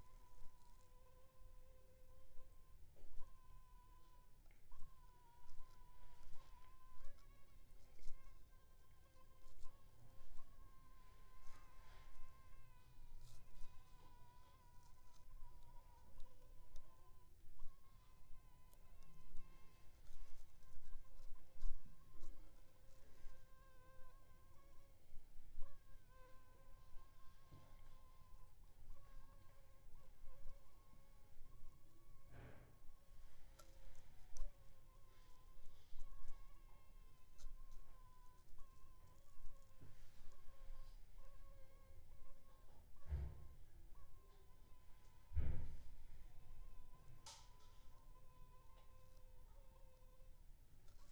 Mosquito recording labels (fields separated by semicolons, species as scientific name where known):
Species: Anopheles funestus s.s.; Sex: female; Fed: unfed; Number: one; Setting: cup